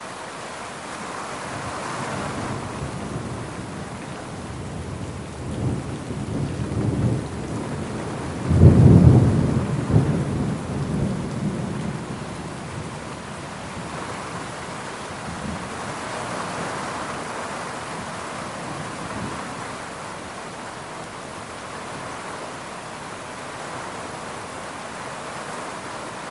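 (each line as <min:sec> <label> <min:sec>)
0:00.0 Heavy rain pouring outdoors. 0:08.1
0:08.3 Thunder rumbles in the distance. 0:10.5
0:11.0 Heavy rain falling outdoors. 0:21.3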